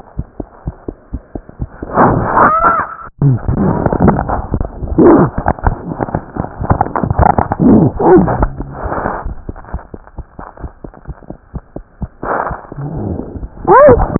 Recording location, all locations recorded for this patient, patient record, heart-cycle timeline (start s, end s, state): aortic valve (AV)
aortic valve (AV)+tricuspid valve (TV)+mitral valve (MV)
#Age: Child
#Sex: Female
#Height: 78.0 cm
#Weight: 9.8 kg
#Pregnancy status: False
#Murmur: Absent
#Murmur locations: nan
#Most audible location: nan
#Systolic murmur timing: nan
#Systolic murmur shape: nan
#Systolic murmur grading: nan
#Systolic murmur pitch: nan
#Systolic murmur quality: nan
#Diastolic murmur timing: nan
#Diastolic murmur shape: nan
#Diastolic murmur grading: nan
#Diastolic murmur pitch: nan
#Diastolic murmur quality: nan
#Outcome: Abnormal
#Campaign: 2015 screening campaign
0.00	9.71	unannotated
9.71	9.82	S1
9.82	9.91	systole
9.91	9.98	S2
9.98	10.16	diastole
10.16	10.26	S1
10.26	10.36	systole
10.36	10.43	S2
10.43	10.61	diastole
10.61	10.72	S1
10.72	10.81	systole
10.81	10.89	S2
10.89	11.04	diastole
11.04	11.18	S1
11.18	11.26	systole
11.26	11.34	S2
11.34	11.50	diastole
11.50	11.63	S1
11.63	11.72	systole
11.72	11.80	S2
11.80	12.00	diastole
12.00	12.10	S1
12.10	14.19	unannotated